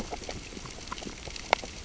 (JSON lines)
{"label": "biophony, grazing", "recorder": "SoundTrap 600 or HydroMoth"}